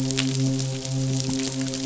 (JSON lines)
{"label": "biophony, midshipman", "recorder": "SoundTrap 500"}